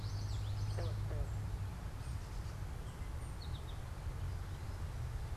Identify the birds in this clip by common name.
Common Yellowthroat, unidentified bird, American Goldfinch